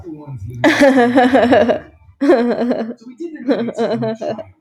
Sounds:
Sigh